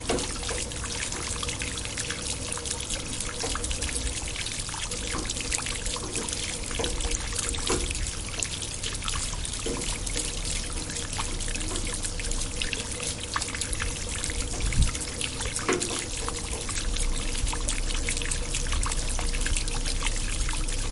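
Water is dripping onto metal. 0.0 - 0.9
A constant stream of water flows. 0.0 - 20.9
Water dripping onto metal. 3.3 - 8.1
Water dripping onto metal. 9.2 - 17.1

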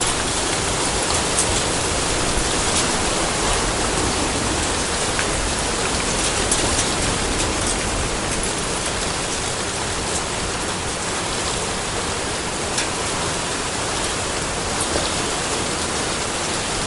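Heavy rain is pouring on the street. 0.0 - 16.9

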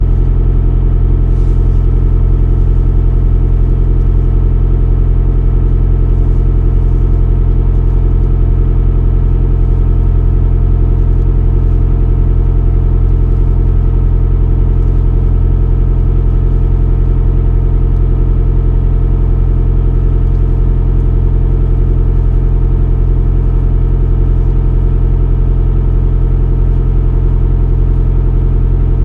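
The engine idles, producing a steady mechanical hum inside a stationary car. 0.0 - 29.0

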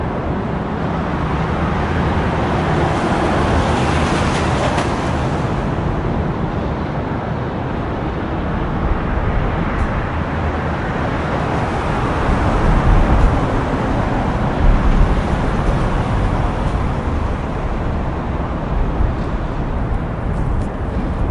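Cars continuously passing on a highway, their sounds loud and gradually fading away. 0.0 - 21.3
Strong wind blowing outdoors in the background. 0.0 - 21.3

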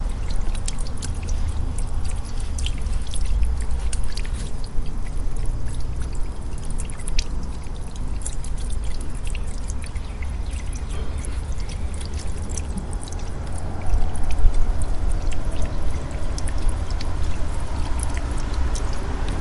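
Water droplets from rainfall create a rhythmic dripping sound as they hit the drainpipe. 0.0 - 19.4
Water droplets fall amid background sounds of traffic and wind. 13.5 - 19.4

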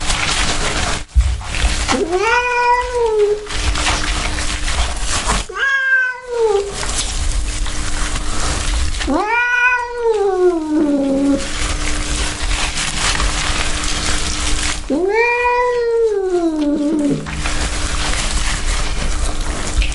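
The sound of something being washed by rubbing. 0.0 - 2.1
A cat meows. 2.1 - 3.4
The sound of something being washed by rubbing. 3.5 - 5.5
A cat meows. 5.5 - 6.6
The sound of something being washed by rubbing. 6.6 - 9.0
A cat meows. 9.1 - 11.4
The sound of something being washed by rubbing. 11.4 - 14.8
A cat meows. 14.8 - 17.3
The sound of something being washed by rubbing. 17.4 - 19.9

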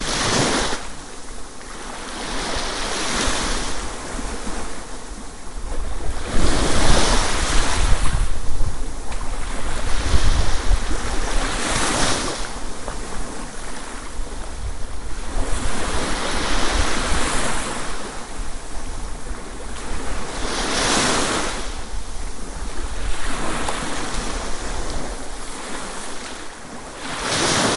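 Waves crashing in the ocean. 0.1 - 27.8

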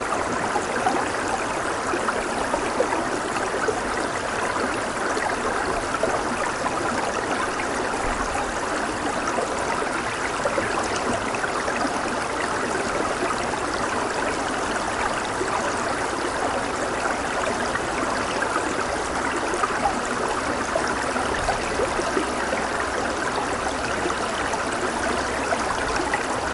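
Water flowing. 0.0 - 26.5

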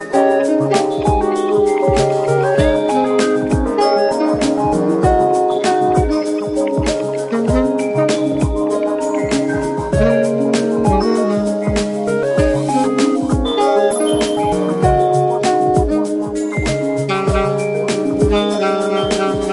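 A groovy, toy-like music box melody with a playful yet slightly mechanical tone plays, featuring rhythmic beats and a nostalgic feel reminiscent of "Twinkle Twinkle" in a stylized, urban atmosphere. 0.0 - 19.5

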